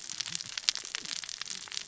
{"label": "biophony, cascading saw", "recorder": "SoundTrap 600 or HydroMoth"}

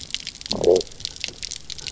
{"label": "biophony, low growl", "recorder": "SoundTrap 300"}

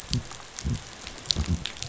{"label": "biophony", "recorder": "SoundTrap 500"}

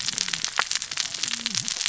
{"label": "biophony, cascading saw", "recorder": "SoundTrap 600 or HydroMoth"}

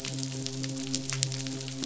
{"label": "biophony, midshipman", "recorder": "SoundTrap 500"}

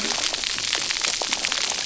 {"label": "biophony", "recorder": "SoundTrap 300"}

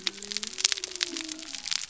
{"label": "biophony", "recorder": "SoundTrap 300"}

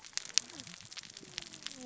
{"label": "biophony, cascading saw", "recorder": "SoundTrap 600 or HydroMoth"}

